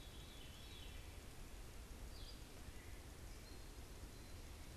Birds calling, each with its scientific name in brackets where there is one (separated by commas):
Veery (Catharus fuscescens), unidentified bird